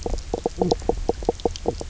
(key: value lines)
label: biophony, knock croak
recorder: SoundTrap 300